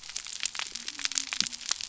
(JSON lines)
{"label": "biophony", "recorder": "SoundTrap 300"}